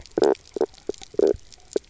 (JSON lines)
{"label": "biophony, knock croak", "recorder": "SoundTrap 300"}